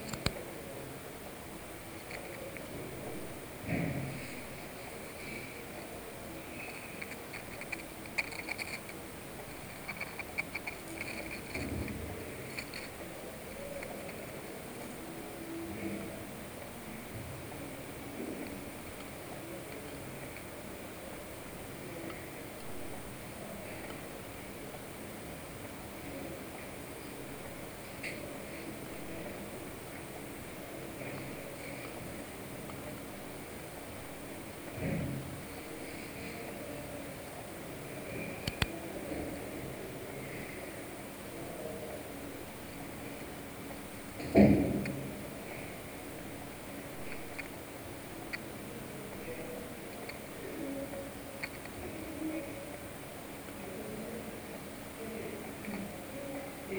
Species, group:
Poecilimon hamatus
Orthoptera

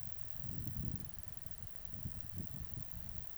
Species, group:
Conocephalus dorsalis
Orthoptera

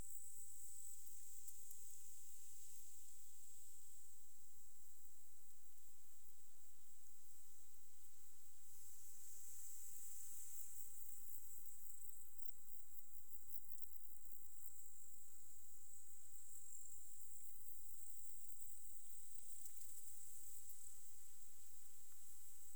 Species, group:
Tettigonia cantans
Orthoptera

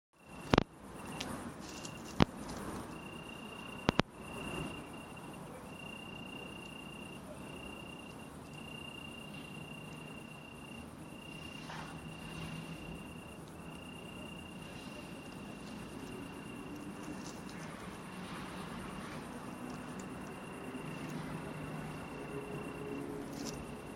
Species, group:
Oecanthus pellucens
Orthoptera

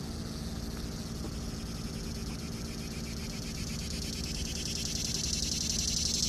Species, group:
Neotibicen tibicen
Cicadidae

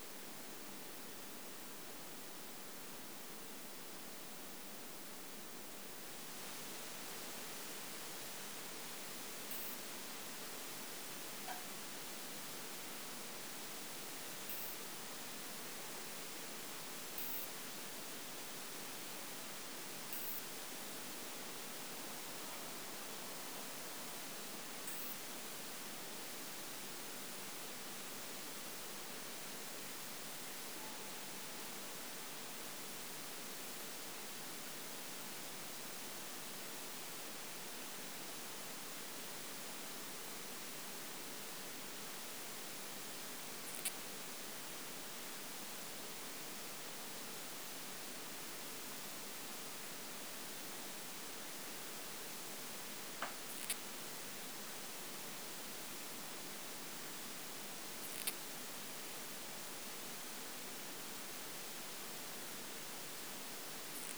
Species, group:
Poecilimon gracilis
Orthoptera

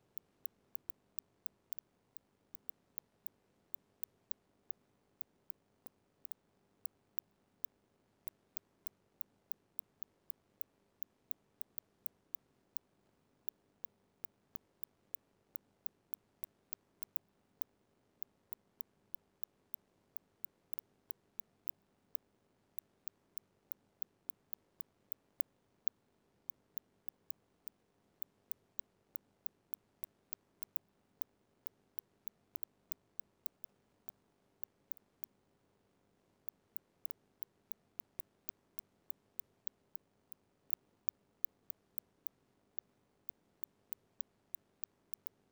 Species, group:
Cyrtaspis scutata
Orthoptera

